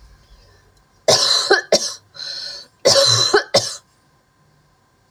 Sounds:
Cough